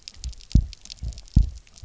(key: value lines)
label: biophony, double pulse
recorder: SoundTrap 300